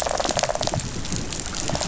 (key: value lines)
label: biophony, rattle response
recorder: SoundTrap 500